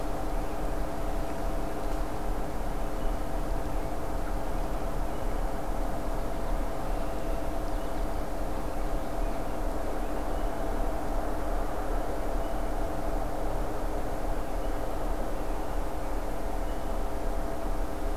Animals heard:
forest ambience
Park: Acadia National Park